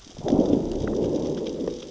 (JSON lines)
{"label": "biophony, growl", "recorder": "SoundTrap 600 or HydroMoth"}